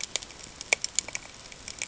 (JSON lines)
{"label": "ambient", "recorder": "HydroMoth"}